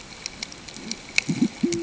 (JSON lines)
{"label": "ambient", "recorder": "HydroMoth"}